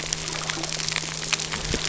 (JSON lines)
{"label": "anthrophony, boat engine", "recorder": "SoundTrap 300"}